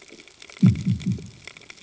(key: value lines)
label: anthrophony, bomb
recorder: HydroMoth